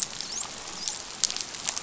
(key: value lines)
label: biophony, dolphin
recorder: SoundTrap 500